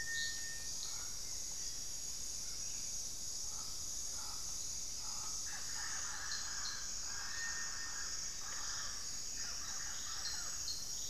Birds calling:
unidentified bird

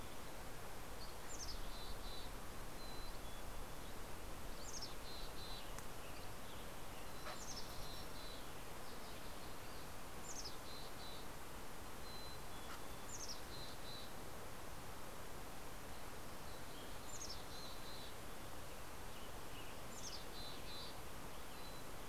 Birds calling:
Dusky Flycatcher (Empidonax oberholseri), Mountain Quail (Oreortyx pictus), Western Tanager (Piranga ludoviciana), Mountain Chickadee (Poecile gambeli)

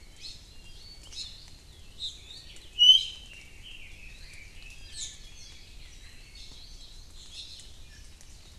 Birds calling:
Red-billed Leiothrix (Leiothrix lutea), Iiwi (Drepanis coccinea), Hawaii Creeper (Loxops mana)

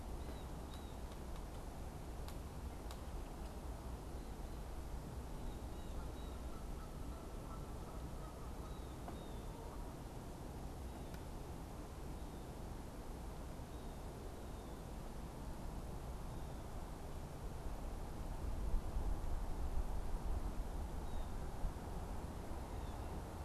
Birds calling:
Canada Goose (Branta canadensis), Blue Jay (Cyanocitta cristata)

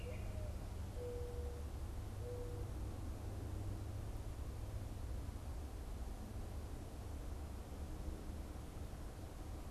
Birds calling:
Mourning Dove (Zenaida macroura), Northern Flicker (Colaptes auratus)

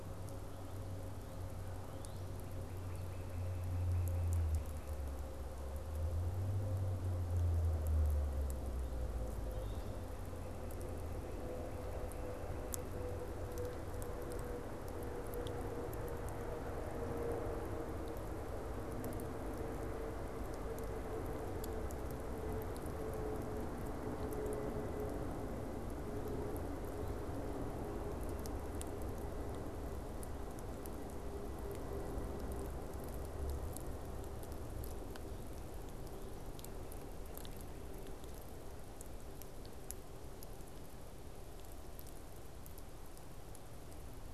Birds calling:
Northern Cardinal (Cardinalis cardinalis)

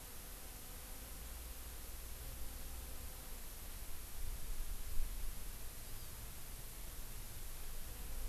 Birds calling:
Hawaii Amakihi (Chlorodrepanis virens)

